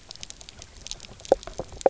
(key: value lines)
label: biophony, knock croak
recorder: SoundTrap 300